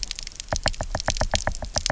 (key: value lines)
label: biophony, knock
recorder: SoundTrap 300